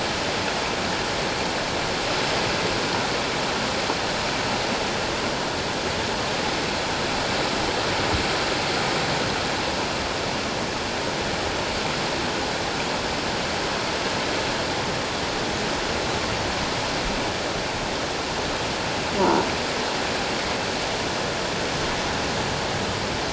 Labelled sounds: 19.2	19.4	croaking sound likely from a nearby submerged object, 0.84 to 1.0 kHz

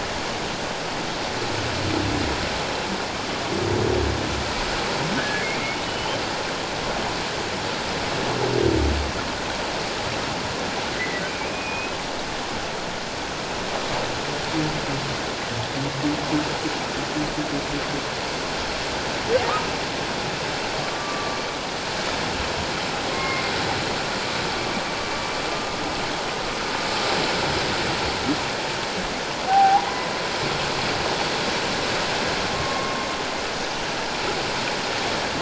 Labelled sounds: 5.2	6.2	humpback whale, 1.5 to 3.2 kHz
11.0	11.9	humpback whale, 1.9 to 2.6 kHz
20.8	21.4	humpback whale, 1.1 to 1.2 kHz
23.1	23.4	humpback whale, 1.0 to 2.2 kHz
25.5	25.8	humpback whale, 1.19 to 1.25 kHz
29.5	30.1	humpback whale, 0.78 to 1.1 kHz
32.5	33.0	humpback whale, 1.0 to 1.1 kHz

